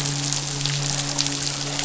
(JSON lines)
{"label": "biophony, midshipman", "recorder": "SoundTrap 500"}